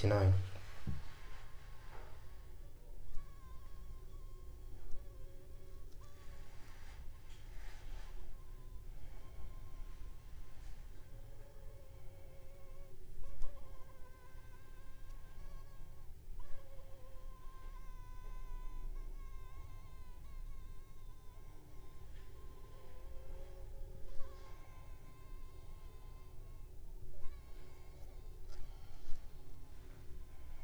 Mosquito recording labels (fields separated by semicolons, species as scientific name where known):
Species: Anopheles funestus s.l.; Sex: female; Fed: unfed; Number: one; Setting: cup